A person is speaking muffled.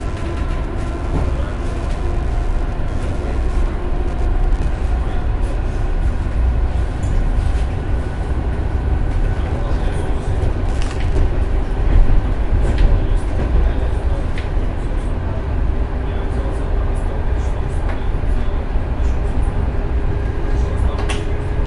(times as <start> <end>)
1.3 4.0, 9.1 21.7